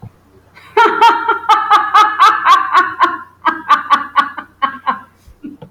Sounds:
Laughter